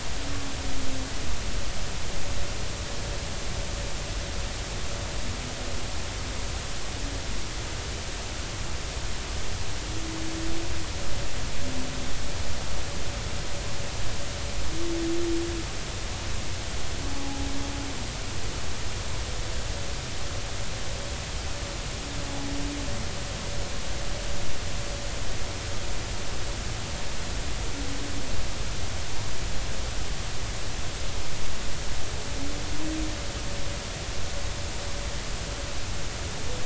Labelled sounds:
17.1	17.5	humpback whale, 0.80 to 0.90 kHz

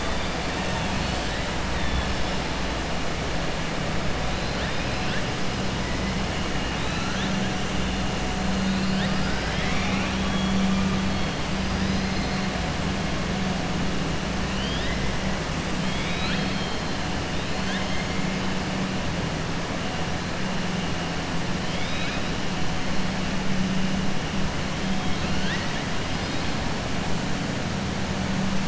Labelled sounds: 8.6	10.7	killer whale, 0.84 to 5.8 kHz
14.5	15.0	killer whale, 1.8 to 5.2 kHz
15.8	16.9	killer whale, 1.3 to 5.1 kHz
21.6	22.2	killer whale, 1.7 to 4.1 kHz
25.0	25.8	killer whale, 1.5 to 5.2 kHz

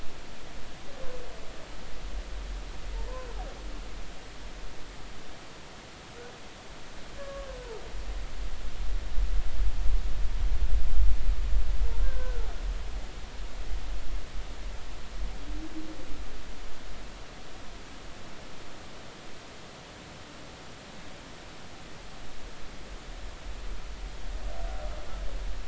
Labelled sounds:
7.2	7.5	humpback whale, 1.1 to 1.2 kHz
12.0	12.5	humpback whale, 1.3 to 1.7 kHz

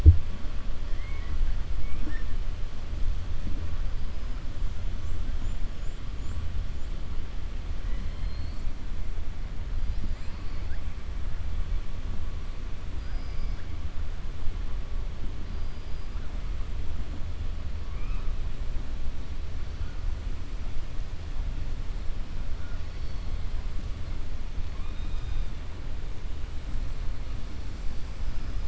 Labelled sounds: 0.9	1.4	killer whale, 1.1 to 2.3 kHz
12.9	13.6	killer whale, 4.3 to 5.9 kHz
15.5	16.1	killer whale, 4.2 to 5.3 kHz

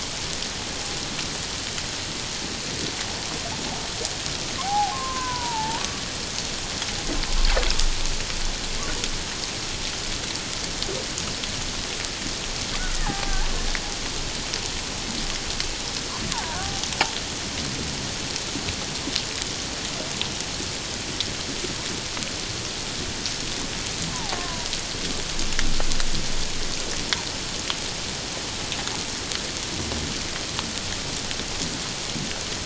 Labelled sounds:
4.6	5.8	killer whale, Bigg's (transient), 0.78 to 1.7 kHz
12.9	13.5	killer whale, Bigg's (transient), 0.78 to 2.0 kHz
16.6	16.9	killer whale, Bigg's (transient), 0.78 to 0.88 kHz
24.1	24.7	killer whale, Bigg's (transient), 0.78 to 1.1 kHz

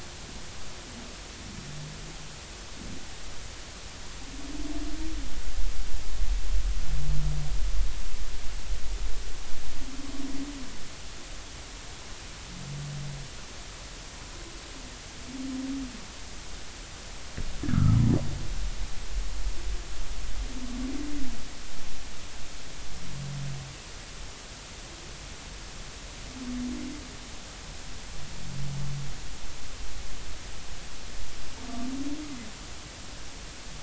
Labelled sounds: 17.6	18.0	humpback whale, 1.2 to 1.8 kHz

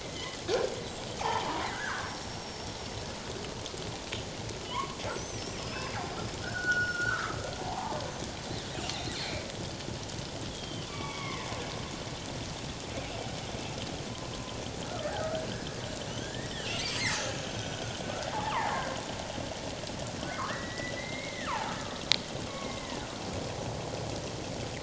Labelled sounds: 0.0	0.4	killer whale, northern resident, G clan, 1.9 to 3.3 kHz
1.2	3.1	killer whale, northern resident, G clan, 0.78 to 5.6 kHz
4.7	5.9	killer whale, northern resident, G clan, 0.94 to 7.9 kHz
6.4	8.0	killer whale, northern resident, G clan, 0.78 to 5.7 kHz
8.7	9.5	killer whale, northern resident, G clan, 2.1 to 2.9 kHz
10.5	11.5	killer whale, northern resident, G clan, 0.94 to 3.5 kHz
14.8	15.5	killer whale, northern resident, G clan, 1.2 to 1.9 kHz
16.1	18.9	killer whale, northern resident, G clan, 0.78 to 7.8 kHz
20.5	22.0	killer whale, northern resident, G clan, 0.78 to 2.2 kHz
22.5	23.0	killer whale, northern resident, G clan, 1.0 to 2.3 kHz

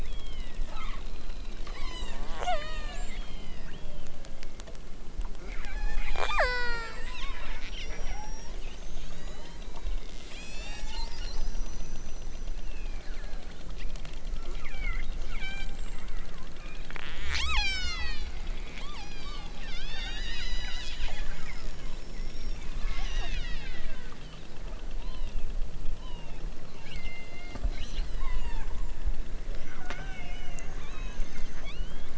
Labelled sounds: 0.0	4.3	killer whale, southern Alaska resident, 0.41 to 8.0 kHz
5.5	11.2	killer whale, southern Alaska resident, 0.32 to 8.0 kHz
12.5	13.7	killer whale, southern Alaska resident, 1.0 to 5.6 kHz
14.3	16.1	killer whale, southern Alaska resident, 0.73 to 8.0 kHz
16.5	16.9	killer whale, southern Alaska resident, 1.1 to 4.6 kHz
17.2	18.4	killer whale, southern Alaska resident, 0.50 to 8.0 kHz
18.7	22.0	killer whale, southern Alaska resident, 0.50 to 8.0 kHz
22.8	24.1	killer whale, southern Alaska resident, 0.69 to 7.4 kHz
25.0	25.4	killer whale, southern Alaska resident, 0.64 to 4.7 kHz
25.9	26.4	killer whale, southern Alaska resident, 0.69 to 5.5 kHz
26.7	28.7	killer whale, southern Alaska resident, 0.69 to 8.0 kHz
29.7	30.4	killer whale, southern Alaska resident, 0.60 to 4.5 kHz
30.7	32.1	killer whale, southern Alaska resident, 0.64 to 6.2 kHz

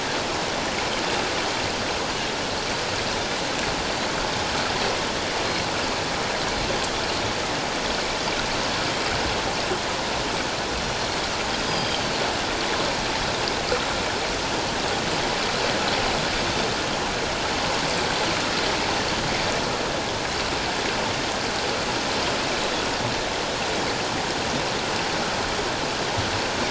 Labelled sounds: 5.4	5.7	Pacific white-sided dolphin, 4.1 to 4.3 kHz
11.6	12.0	Pacific white-sided dolphin, 3.1 to 5.1 kHz

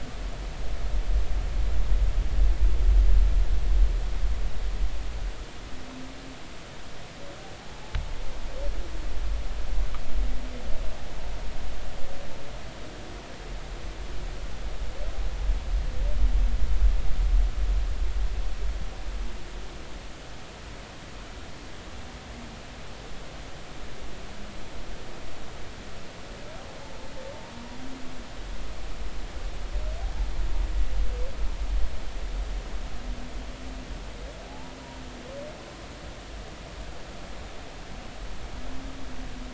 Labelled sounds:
34.5	34.7	humpback whale, 0.80 to 0.99 kHz

